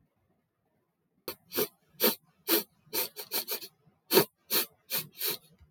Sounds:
Sniff